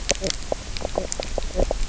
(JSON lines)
{"label": "biophony, knock croak", "recorder": "SoundTrap 300"}